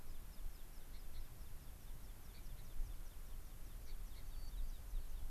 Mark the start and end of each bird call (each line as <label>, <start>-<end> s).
American Pipit (Anthus rubescens), 0.0-5.3 s
Gray-crowned Rosy-Finch (Leucosticte tephrocotis), 0.9-1.2 s
Gray-crowned Rosy-Finch (Leucosticte tephrocotis), 2.3-2.6 s
Gray-crowned Rosy-Finch (Leucosticte tephrocotis), 3.8-4.3 s
White-crowned Sparrow (Zonotrichia leucophrys), 4.2-4.6 s